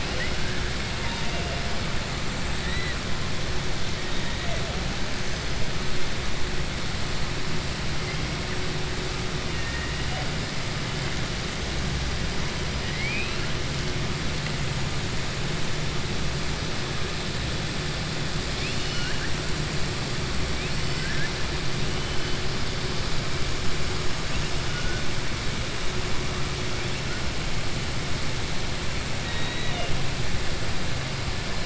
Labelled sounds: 12.8	13.5	killer whale, southern resident, 1.9 to 4.1 kHz
18.5	19.3	killer whale, southern resident, 1.4 to 5.9 kHz
20.9	21.3	killer whale, southern resident, 1.5 to 3.0 kHz

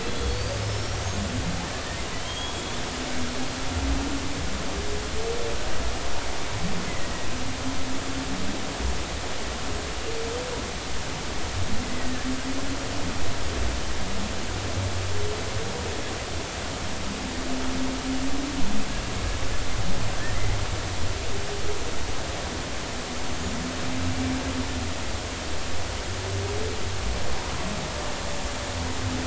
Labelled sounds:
0.1	1.0	killer whale, Bigg's (transient), 3.3 to 5.8 kHz
2.1	2.8	killer whale, Bigg's (transient), 2.9 to 8.0 kHz

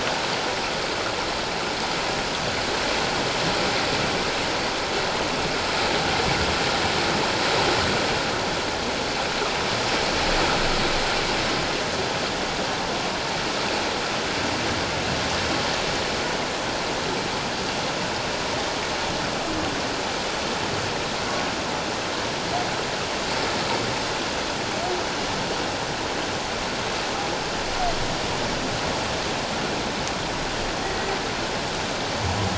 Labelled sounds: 30.8	31.1	humpback whale, 1.9 to 2.0 kHz

